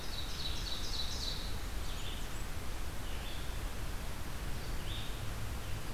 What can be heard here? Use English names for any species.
Ovenbird, Red-eyed Vireo, Blackburnian Warbler